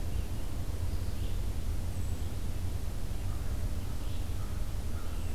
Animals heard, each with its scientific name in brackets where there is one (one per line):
Red-eyed Vireo (Vireo olivaceus)
Hermit Thrush (Catharus guttatus)
American Crow (Corvus brachyrhynchos)